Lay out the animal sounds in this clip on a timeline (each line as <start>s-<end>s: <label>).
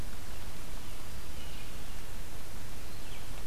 0.0s-3.5s: Red-eyed Vireo (Vireo olivaceus)